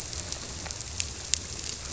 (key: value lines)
label: biophony
recorder: SoundTrap 300